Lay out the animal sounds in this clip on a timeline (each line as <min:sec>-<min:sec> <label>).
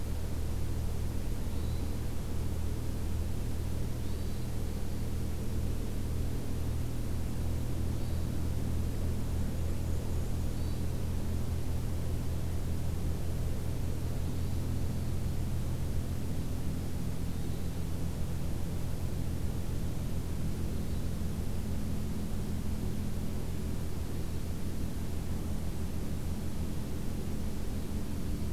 0:01.4-0:02.0 Hermit Thrush (Catharus guttatus)
0:03.9-0:04.5 Hermit Thrush (Catharus guttatus)
0:07.9-0:08.3 Hermit Thrush (Catharus guttatus)
0:09.6-0:10.7 Black-and-white Warbler (Mniotilta varia)
0:10.5-0:11.0 Hermit Thrush (Catharus guttatus)
0:14.2-0:14.7 Hermit Thrush (Catharus guttatus)
0:17.2-0:17.7 Hermit Thrush (Catharus guttatus)
0:20.7-0:21.3 Hermit Thrush (Catharus guttatus)